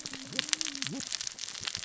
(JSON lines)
{"label": "biophony, cascading saw", "recorder": "SoundTrap 600 or HydroMoth"}